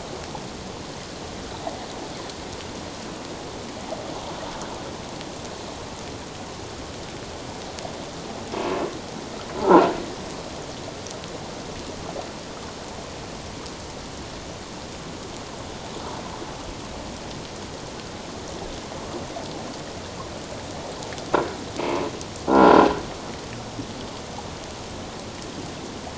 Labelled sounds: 9.6	9.9	croaking sound likely from a nearby submerged object, 1.2 to 1.5 kHz
22.5	22.8	croaking sound likely from a nearby submerged object, 1.3 to 1.5 kHz

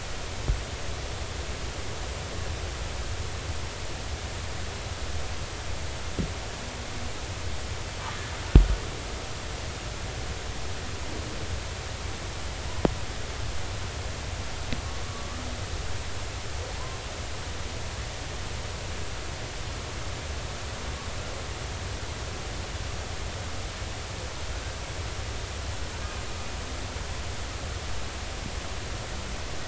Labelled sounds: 15.1	15.3	humpback whale, 1.0 to 1.3 kHz
25.9	26.2	humpback whale, 1.4 to 1.7 kHz

